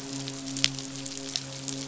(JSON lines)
{"label": "biophony, midshipman", "recorder": "SoundTrap 500"}